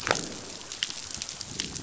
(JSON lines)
{"label": "biophony, growl", "recorder": "SoundTrap 500"}